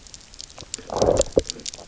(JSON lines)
{"label": "biophony, low growl", "recorder": "SoundTrap 300"}